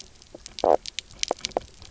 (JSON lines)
{"label": "biophony, knock croak", "recorder": "SoundTrap 300"}